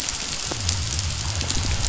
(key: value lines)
label: biophony
recorder: SoundTrap 500